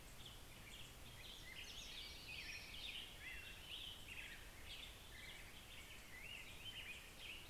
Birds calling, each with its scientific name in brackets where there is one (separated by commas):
Hermit Warbler (Setophaga occidentalis), American Robin (Turdus migratorius)